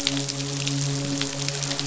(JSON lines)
{"label": "biophony, midshipman", "recorder": "SoundTrap 500"}